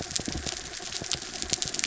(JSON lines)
{"label": "anthrophony, mechanical", "recorder": "SoundTrap 300"}